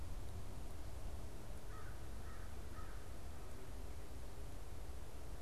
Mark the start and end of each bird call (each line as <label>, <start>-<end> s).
American Crow (Corvus brachyrhynchos), 1.6-3.6 s